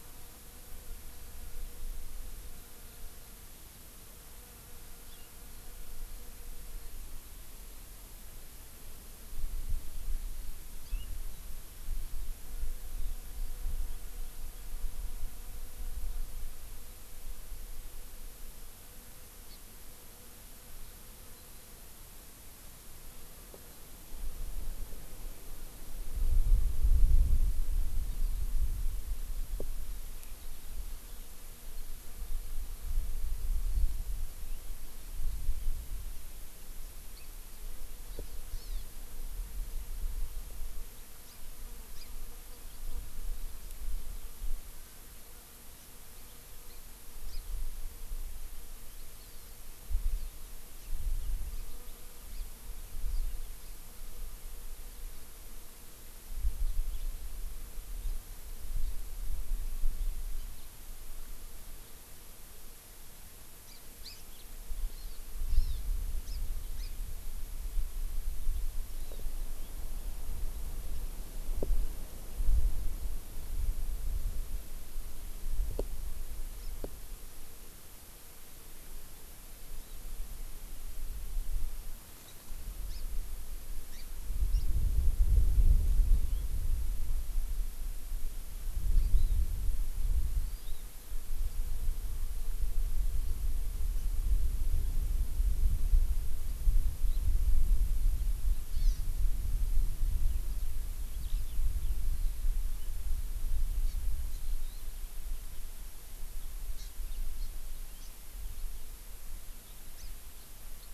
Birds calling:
House Finch (Haemorhous mexicanus), Eurasian Skylark (Alauda arvensis), Hawaii Amakihi (Chlorodrepanis virens)

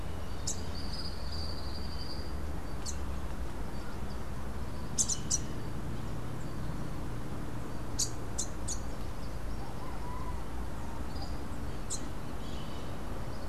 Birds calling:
Tropical Kingbird (Tyrannus melancholicus), Rufous-capped Warbler (Basileuterus rufifrons)

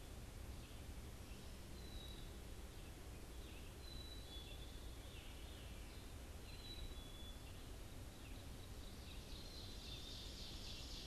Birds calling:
Black-capped Chickadee (Poecile atricapillus), Red-eyed Vireo (Vireo olivaceus), Ovenbird (Seiurus aurocapilla), Veery (Catharus fuscescens)

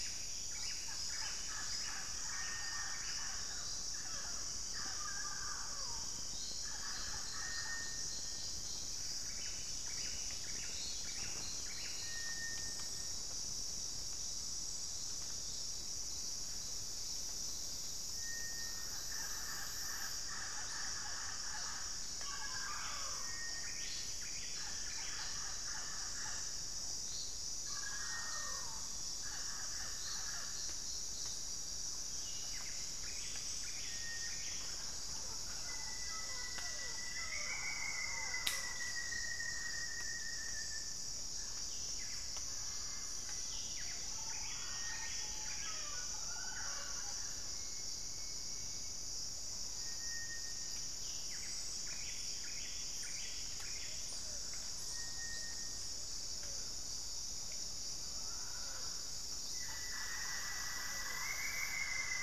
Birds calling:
Cinereous Tinamou (Crypturellus cinereus), Mealy Parrot (Amazona farinosa), Ringed Woodpecker (Celeus torquatus), Buff-breasted Wren (Cantorchilus leucotis), Pale-vented Pigeon (Patagioenas cayennensis), Rufous-fronted Antthrush (Formicarius rufifrons)

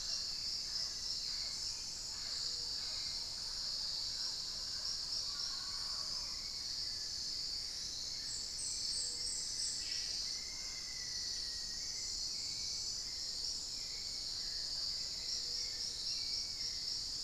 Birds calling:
Hauxwell's Thrush (Turdus hauxwelli), Black-faced Antthrush (Formicarius analis), unidentified bird, Mealy Parrot (Amazona farinosa)

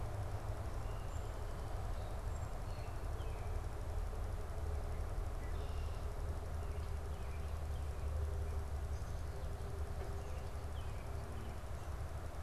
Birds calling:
Song Sparrow (Melospiza melodia), American Robin (Turdus migratorius)

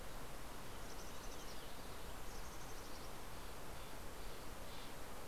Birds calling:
Steller's Jay (Cyanocitta stelleri), Mountain Chickadee (Poecile gambeli)

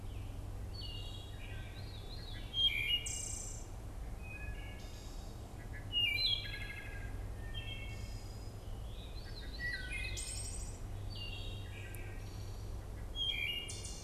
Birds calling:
Wood Thrush (Hylocichla mustelina), Veery (Catharus fuscescens)

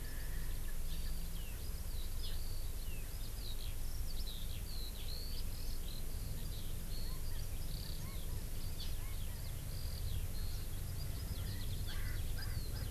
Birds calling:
Eurasian Skylark (Alauda arvensis), Erckel's Francolin (Pternistis erckelii)

